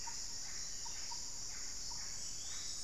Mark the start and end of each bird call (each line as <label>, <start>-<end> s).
Yellow-rumped Cacique (Cacicus cela), 0.0-2.8 s
unidentified bird, 2.0-2.8 s